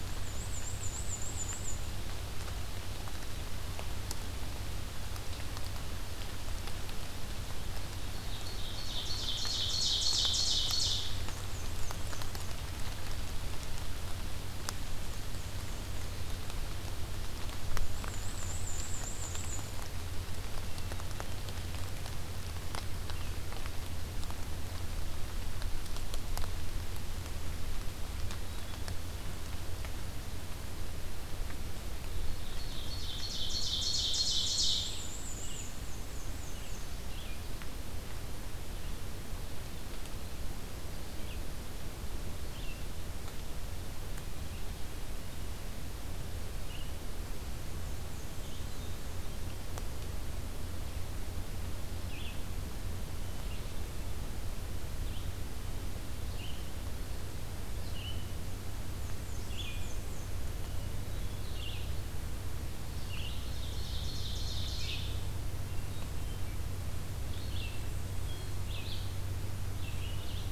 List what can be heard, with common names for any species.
Black-and-white Warbler, Ovenbird, Red-eyed Vireo, Hermit Thrush